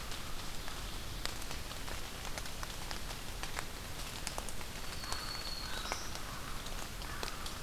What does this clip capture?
Black-throated Green Warbler, American Crow